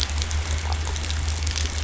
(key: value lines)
label: anthrophony, boat engine
recorder: SoundTrap 500